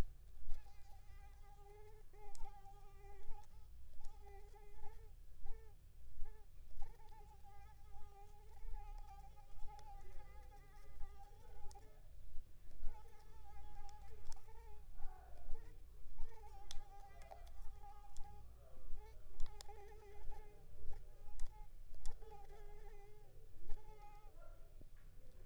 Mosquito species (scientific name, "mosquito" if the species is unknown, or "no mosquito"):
Anopheles squamosus